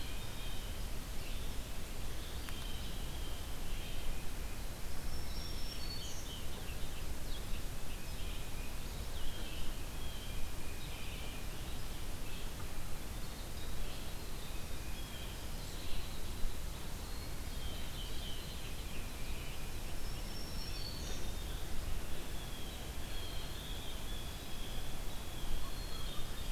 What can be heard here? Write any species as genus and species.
Baeolophus bicolor, Cyanocitta cristata, Vireo olivaceus, Troglodytes hiemalis, Setophaga virens, Poecile atricapillus